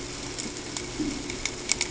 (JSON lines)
{"label": "ambient", "recorder": "HydroMoth"}